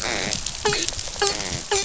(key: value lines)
label: biophony, dolphin
recorder: SoundTrap 500